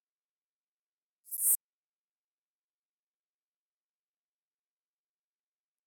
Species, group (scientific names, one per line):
Synephippius obvius
Orthoptera